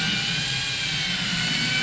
{"label": "anthrophony, boat engine", "recorder": "SoundTrap 500"}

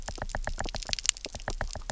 {"label": "biophony, knock", "recorder": "SoundTrap 300"}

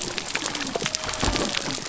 {"label": "biophony", "recorder": "SoundTrap 300"}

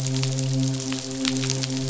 {"label": "biophony, midshipman", "recorder": "SoundTrap 500"}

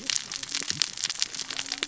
{"label": "biophony, cascading saw", "recorder": "SoundTrap 600 or HydroMoth"}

